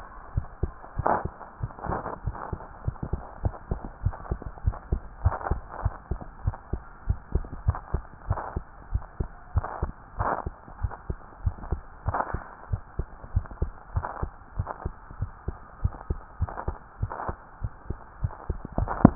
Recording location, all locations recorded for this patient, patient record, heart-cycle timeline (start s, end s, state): tricuspid valve (TV)
aortic valve (AV)+pulmonary valve (PV)+tricuspid valve (TV)+mitral valve (MV)
#Age: Child
#Sex: Female
#Height: 125.0 cm
#Weight: 23.0 kg
#Pregnancy status: False
#Murmur: Absent
#Murmur locations: nan
#Most audible location: nan
#Systolic murmur timing: nan
#Systolic murmur shape: nan
#Systolic murmur grading: nan
#Systolic murmur pitch: nan
#Systolic murmur quality: nan
#Diastolic murmur timing: nan
#Diastolic murmur shape: nan
#Diastolic murmur grading: nan
#Diastolic murmur pitch: nan
#Diastolic murmur quality: nan
#Outcome: Abnormal
#Campaign: 2015 screening campaign
0.00	3.39	unannotated
3.39	3.56	S1
3.56	3.70	systole
3.70	3.82	S2
3.82	4.04	diastole
4.04	4.16	S1
4.16	4.28	systole
4.28	4.40	S2
4.40	4.62	diastole
4.62	4.78	S1
4.78	4.90	systole
4.90	5.04	S2
5.04	5.22	diastole
5.22	5.34	S1
5.34	5.48	systole
5.48	5.62	S2
5.62	5.82	diastole
5.82	5.96	S1
5.96	6.10	systole
6.10	6.22	S2
6.22	6.44	diastole
6.44	6.56	S1
6.56	6.72	systole
6.72	6.84	S2
6.84	7.08	diastole
7.08	7.20	S1
7.20	7.34	systole
7.34	7.46	S2
7.46	7.66	diastole
7.66	7.80	S1
7.80	7.92	systole
7.92	8.06	S2
8.06	8.28	diastole
8.28	8.40	S1
8.40	8.54	systole
8.54	8.64	S2
8.64	8.90	diastole
8.90	9.02	S1
9.02	9.16	systole
9.16	9.30	S2
9.30	9.54	diastole
9.54	9.66	S1
9.66	9.82	systole
9.82	9.94	S2
9.94	10.17	diastole
10.17	10.32	S1
10.32	10.44	systole
10.44	10.54	S2
10.54	10.78	diastole
10.78	10.92	S1
10.92	11.07	systole
11.07	11.18	S2
11.18	11.42	diastole
11.42	11.56	S1
11.56	11.70	systole
11.70	11.82	S2
11.82	12.06	diastole
12.06	12.16	S1
12.16	12.32	systole
12.32	12.42	S2
12.42	12.70	diastole
12.70	12.82	S1
12.82	12.96	systole
12.96	13.08	S2
13.08	13.34	diastole
13.34	13.48	S1
13.48	13.58	systole
13.58	13.72	S2
13.72	13.93	diastole
13.93	14.06	S1
14.06	14.20	systole
14.20	14.32	S2
14.32	14.56	diastole
14.56	14.68	S1
14.68	14.84	systole
14.84	14.94	S2
14.94	15.18	diastole
15.18	15.32	S1
15.32	15.46	systole
15.46	15.58	S2
15.58	15.82	diastole
15.82	15.94	S1
15.94	16.06	systole
16.06	16.18	S2
16.18	16.39	diastole
16.39	16.52	S1
16.52	16.66	systole
16.66	16.78	S2
16.78	17.00	diastole
17.00	17.12	S1
17.12	17.27	systole
17.27	17.38	S2
17.38	17.62	diastole
17.62	17.72	S1
17.72	17.87	systole
17.87	17.98	S2
17.98	18.22	diastole
18.22	18.32	S1
18.32	18.47	systole
18.47	18.58	S2
18.58	19.15	unannotated